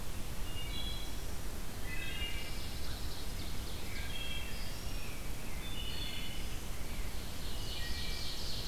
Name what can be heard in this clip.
Wood Thrush, Pine Warbler, Ovenbird, Rose-breasted Grosbeak